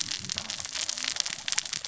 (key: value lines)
label: biophony, cascading saw
recorder: SoundTrap 600 or HydroMoth